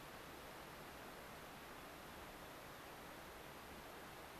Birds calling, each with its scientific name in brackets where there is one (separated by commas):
American Pipit (Anthus rubescens)